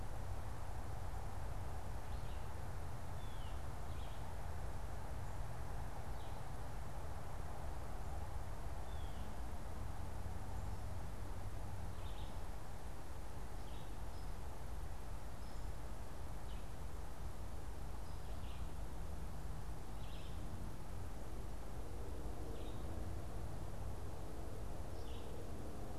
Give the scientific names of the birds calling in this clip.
Vireo olivaceus, Cyanocitta cristata